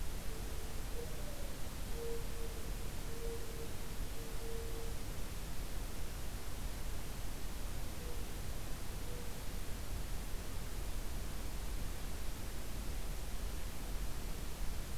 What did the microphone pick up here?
Mourning Dove